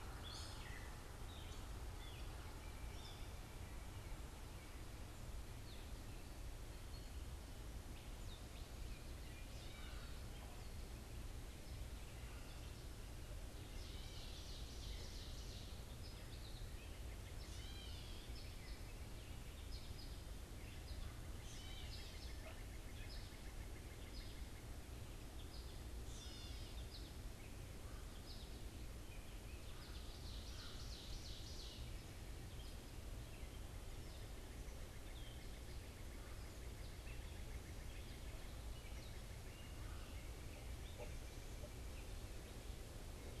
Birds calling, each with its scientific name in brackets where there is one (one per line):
unidentified bird
Gray Catbird (Dumetella carolinensis)
American Goldfinch (Spinus tristis)
Ovenbird (Seiurus aurocapilla)